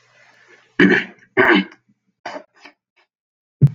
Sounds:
Sneeze